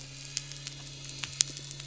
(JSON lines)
{"label": "anthrophony, boat engine", "recorder": "SoundTrap 300"}